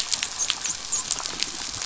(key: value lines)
label: biophony, dolphin
recorder: SoundTrap 500